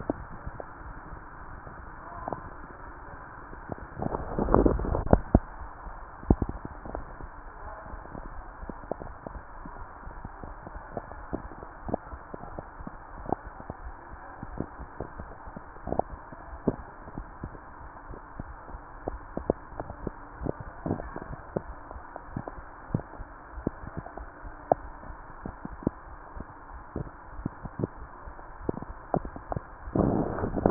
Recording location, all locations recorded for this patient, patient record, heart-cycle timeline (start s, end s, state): tricuspid valve (TV)
aortic valve (AV)+pulmonary valve (PV)+tricuspid valve (TV)
#Age: nan
#Sex: Female
#Height: nan
#Weight: nan
#Pregnancy status: True
#Murmur: Absent
#Murmur locations: nan
#Most audible location: nan
#Systolic murmur timing: nan
#Systolic murmur shape: nan
#Systolic murmur grading: nan
#Systolic murmur pitch: nan
#Systolic murmur quality: nan
#Diastolic murmur timing: nan
#Diastolic murmur shape: nan
#Diastolic murmur grading: nan
#Diastolic murmur pitch: nan
#Diastolic murmur quality: nan
#Outcome: Normal
#Campaign: 2015 screening campaign
0.00	7.05	unannotated
7.05	7.06	S2
7.06	7.21	diastole
7.21	7.28	S1
7.28	7.36	systole
7.36	7.46	S2
7.46	7.66	diastole
7.66	7.76	S1
7.76	7.91	systole
7.91	7.99	S2
7.99	8.18	diastole
8.18	8.30	S1
8.30	8.36	systole
8.36	8.46	S2
8.46	8.62	diastole
8.62	8.74	S1
8.74	8.80	systole
8.80	8.88	S2
8.88	9.08	diastole
9.08	9.18	S1
9.18	9.30	systole
9.30	9.42	S2
9.42	9.61	diastole
9.61	9.70	S1
9.70	9.76	systole
9.76	9.86	S2
9.86	10.06	diastole
10.06	10.18	S1
10.18	10.26	systole
10.26	10.32	S2
10.32	10.50	diastole
10.50	10.59	S1
10.59	10.74	systole
10.74	10.78	S2
10.78	10.94	diastole
10.94	11.06	S1
11.06	11.14	systole
11.14	11.24	S2
11.24	11.42	diastole
11.42	11.52	S1
11.52	11.58	systole
11.58	11.64	S2
11.64	11.86	diastole
11.86	11.96	S1
11.96	12.11	systole
12.11	12.19	S2
12.19	12.38	diastole
12.38	12.44	S1
12.44	12.50	systole
12.50	12.58	S2
12.58	12.78	diastole
12.78	12.88	S1
12.88	12.94	systole
12.94	13.02	S2
13.02	13.23	diastole
13.23	13.32	S1
13.32	13.44	systole
13.44	13.52	S2
13.52	13.82	diastole
13.82	13.96	S1
13.96	14.10	systole
14.10	14.20	S2
14.20	14.42	diastole
14.42	14.58	S1
14.58	14.68	systole
14.68	14.76	S2
14.76	14.98	diastole
14.98	15.08	S1
15.08	15.18	systole
15.18	15.28	S2
15.28	15.48	diastole
15.48	15.54	S1
15.54	15.64	systole
15.64	15.70	S2
15.70	15.88	diastole
15.88	15.97	S1
15.97	16.12	systole
16.12	16.18	S2
16.18	16.47	diastole
16.47	16.60	S1
16.60	16.76	systole
16.76	16.85	S2
16.85	17.05	diastole
17.05	17.12	S1
17.12	17.19	systole
17.19	17.26	S2
17.26	17.42	diastole
17.42	17.52	S1
17.52	17.56	systole
17.56	17.64	S2
17.64	17.84	diastole
17.84	17.96	S1
17.96	18.08	systole
18.08	18.20	S2
18.20	18.40	diastole
18.40	18.56	S1
18.56	18.70	systole
18.70	18.82	S2
18.82	19.04	diastole
19.04	30.70	unannotated